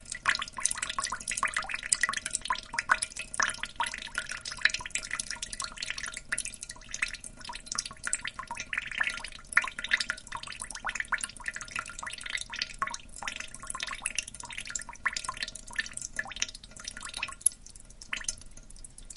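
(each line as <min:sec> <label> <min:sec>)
0:00.0 Slow, repeated dripping of water from a faucet. 0:19.2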